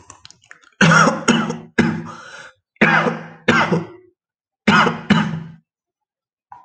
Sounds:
Cough